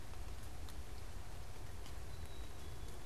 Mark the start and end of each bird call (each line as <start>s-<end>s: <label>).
2.0s-3.0s: Black-capped Chickadee (Poecile atricapillus)